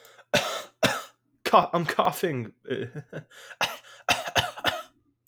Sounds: Cough